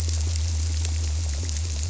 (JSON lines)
{"label": "biophony", "recorder": "SoundTrap 300"}